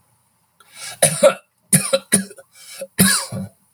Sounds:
Cough